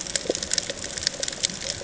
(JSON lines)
{"label": "ambient", "recorder": "HydroMoth"}